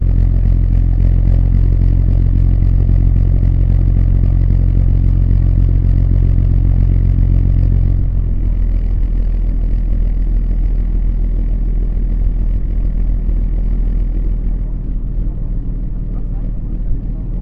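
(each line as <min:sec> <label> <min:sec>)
0:00.0 A diesel boat engine running monotonously. 0:07.9
0:07.9 A diesel boat engine running at low revolutions. 0:14.7
0:14.7 People are talking in the distance. 0:17.4
0:14.7 A diesel engine of a boat running at very low revolutions. 0:17.4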